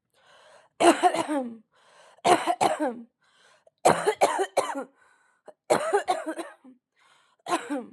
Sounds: Cough